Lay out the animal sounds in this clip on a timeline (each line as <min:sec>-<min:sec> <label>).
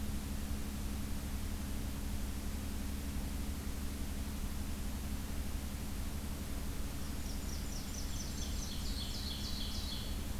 0:06.9-0:09.2 Blackburnian Warbler (Setophaga fusca)
0:08.0-0:10.4 Ovenbird (Seiurus aurocapilla)